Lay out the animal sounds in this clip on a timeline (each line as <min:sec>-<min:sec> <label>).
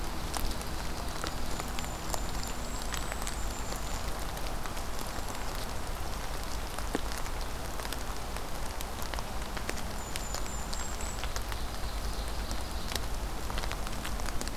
0:00.0-0:01.5 Ovenbird (Seiurus aurocapilla)
0:01.2-0:04.1 Golden-crowned Kinglet (Regulus satrapa)
0:04.7-0:05.5 Golden-crowned Kinglet (Regulus satrapa)
0:09.9-0:11.3 Golden-crowned Kinglet (Regulus satrapa)
0:11.2-0:13.0 Ovenbird (Seiurus aurocapilla)